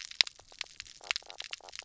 {"label": "biophony, knock croak", "recorder": "SoundTrap 300"}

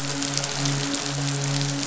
{"label": "biophony, midshipman", "recorder": "SoundTrap 500"}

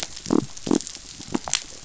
{"label": "biophony", "recorder": "SoundTrap 500"}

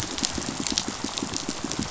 {"label": "biophony, pulse", "recorder": "SoundTrap 500"}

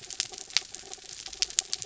{"label": "anthrophony, mechanical", "recorder": "SoundTrap 300"}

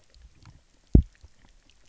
{"label": "biophony, double pulse", "recorder": "SoundTrap 300"}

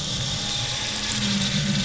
{"label": "anthrophony, boat engine", "recorder": "SoundTrap 500"}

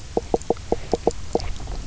{"label": "biophony, knock croak", "recorder": "SoundTrap 300"}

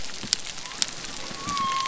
{"label": "biophony", "recorder": "SoundTrap 300"}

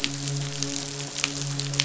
{"label": "biophony, midshipman", "recorder": "SoundTrap 500"}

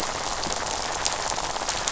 {"label": "biophony, rattle", "recorder": "SoundTrap 500"}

